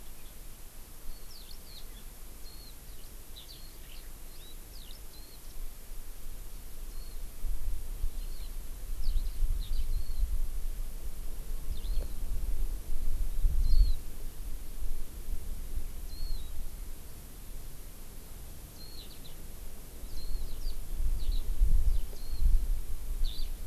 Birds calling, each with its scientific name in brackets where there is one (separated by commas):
Warbling White-eye (Zosterops japonicus), Eurasian Skylark (Alauda arvensis)